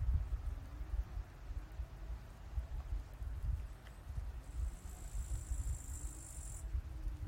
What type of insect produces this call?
orthopteran